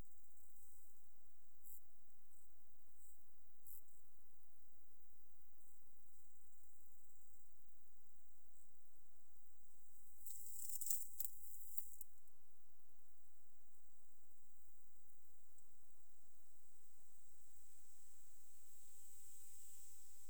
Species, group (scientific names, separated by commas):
Leptophyes punctatissima, Orthoptera